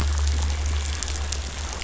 {"label": "anthrophony, boat engine", "recorder": "SoundTrap 500"}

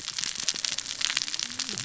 {"label": "biophony, cascading saw", "recorder": "SoundTrap 600 or HydroMoth"}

